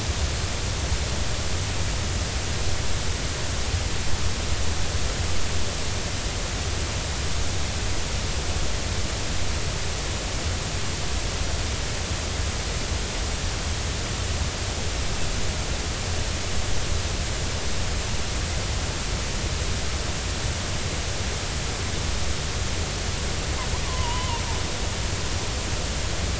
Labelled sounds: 23.9	24.4	killer whale, Bigg's (transient), 0.86 to 3.1 kHz

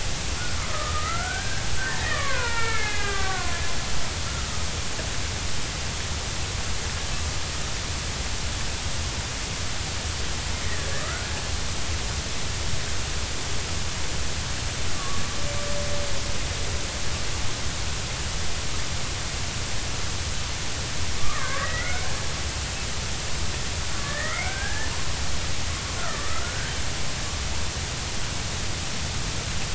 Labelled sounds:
0.6	3.6	killer whale, Bigg's (transient), 0.86 to 2.6 kHz
11.0	11.3	killer whale, Bigg's (transient), 1.2 to 1.5 kHz
14.9	15.2	killer whale, Bigg's (transient), 1.0 to 1.2 kHz
21.2	22.0	killer whale, Bigg's (transient), 0.99 to 2.2 kHz
23.9	24.9	killer whale, Bigg's (transient), 1.1 to 2.4 kHz
26.0	26.7	killer whale, Bigg's (transient), 1.1 to 1.7 kHz

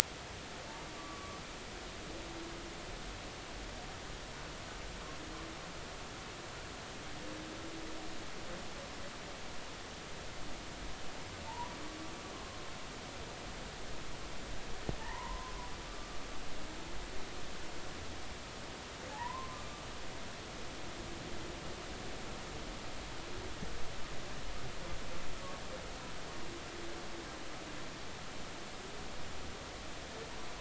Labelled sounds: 1.0	1.4	humpback whale, 1.1 to 1.2 kHz
11.5	11.7	humpback whale, 0.83 to 1.1 kHz
12.3	12.6	humpback whale, 0.99 to 1.1 kHz
15.0	15.5	humpback whale, 0.83 to 2.2 kHz
19.1	19.6	humpback whale, 0.80 to 1.1 kHz

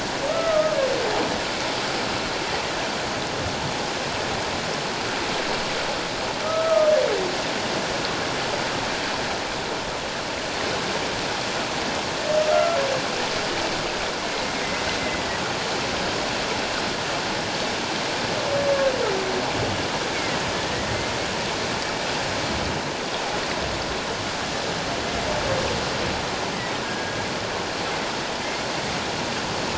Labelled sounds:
0.3	0.8	humpback whale, 1.2 to 1.4 kHz
6.4	6.9	humpback whale, 1.2 to 1.4 kHz
12.4	12.8	humpback whale, 1.2 to 1.4 kHz
15.0	15.4	humpback whale, 1.8 to 2.1 kHz
20.1	20.4	humpback whale, 1.9 to 2.3 kHz
26.8	27.2	humpback whale, 1.6 to 1.7 kHz
28.4	28.7	humpback whale, 2.0 to 2.2 kHz

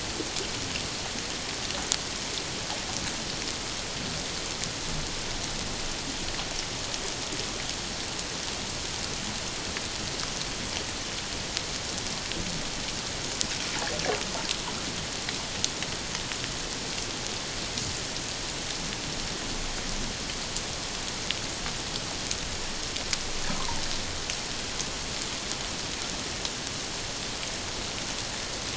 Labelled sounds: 23.6	23.8	water noise, 0.84 to 1.2 kHz

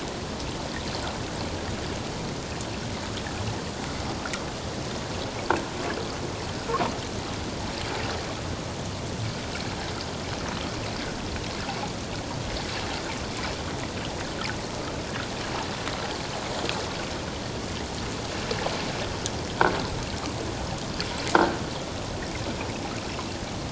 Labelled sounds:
21.3	21.6	croaking sound likely from a nearby submerged object, 1.3 to 1.6 kHz

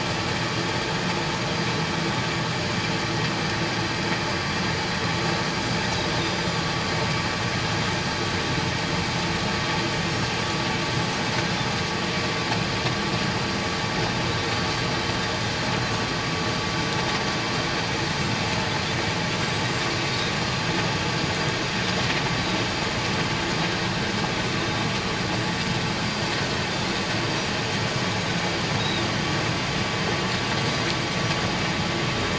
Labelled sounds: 6.2	6.6	Pacific white-sided dolphin, 7.1 to 7.3 kHz
20.1	20.3	Pacific white-sided dolphin, 3.7 to 3.9 kHz
26.1	26.3	Pacific white-sided dolphin, 4.6 to 4.8 kHz
28.8	29.0	Pacific white-sided dolphin, 3.5 to 4.0 kHz

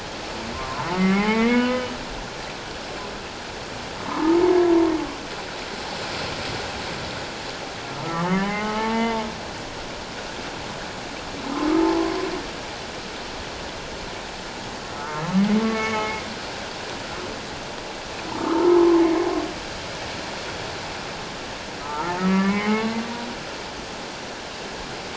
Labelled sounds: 0.5	1.9	humpback whale, 0.78 to 3.1 kHz
4.0	4.4	humpback whale, 0.84 to 1.3 kHz
8.1	9.3	humpback whale, 0.78 to 2.3 kHz
11.8	12.1	humpback whale, 0.81 to 1.1 kHz
15.0	16.2	humpback whale, 1.0 to 2.2 kHz
18.3	19.1	humpback whale, 0.84 to 1.4 kHz
21.8	22.9	humpback whale, 0.81 to 2.3 kHz

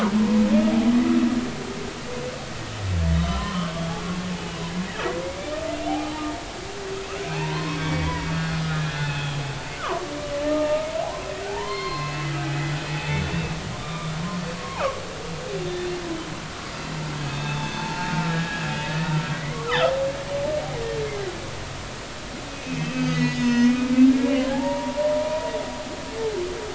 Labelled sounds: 3.1	3.7	humpback whale, 0.96 to 3.1 kHz
5.9	6.2	humpback whale, 0.80 to 0.99 kHz
7.2	9.3	humpback whale, 0.80 to 3.5 kHz
9.8	10.0	humpback whale, 0.93 to 1.6 kHz
10.5	10.9	humpback whale, 0.83 to 1.3 kHz
11.5	12.3	humpback whale, 0.80 to 4.3 kHz
12.9	13.2	humpback whale, 0.80 to 2.7 kHz
13.8	14.1	humpback whale, 1.1 to 1.2 kHz
14.6	14.8	humpback whale, 0.80 to 1.2 kHz
15.6	15.9	humpback whale, 3.5 to 3.6 kHz
17.2	18.7	humpback whale, 0.83 to 3.7 kHz
19.3	19.9	humpback whale, 1.9 to 3.8 kHz
22.5	25.1	humpback whale, 0.80 to 6.5 kHz

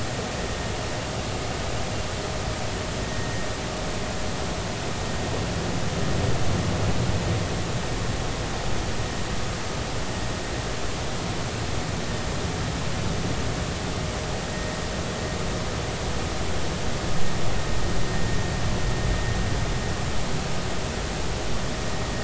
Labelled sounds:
3.1	3.5	vessel noise, 1.8 to 1.9 kHz

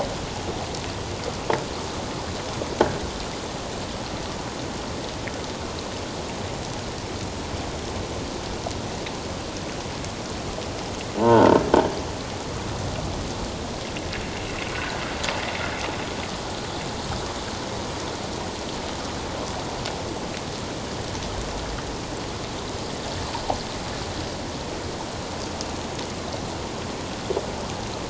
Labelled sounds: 11.2	11.5	croaking sound likely from a nearby submerged object, 0.84 to 1.6 kHz
14.7	15.0	sound from a nearby beach, 1.4 to 1.7 kHz

